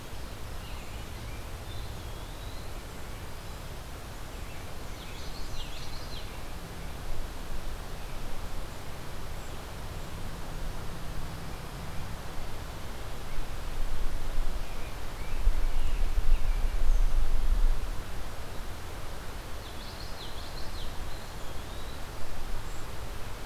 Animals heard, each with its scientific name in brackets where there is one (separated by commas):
Tufted Titmouse (Baeolophus bicolor), American Robin (Turdus migratorius), Common Yellowthroat (Geothlypis trichas), Eastern Wood-Pewee (Contopus virens)